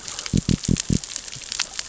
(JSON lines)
{"label": "biophony", "recorder": "SoundTrap 600 or HydroMoth"}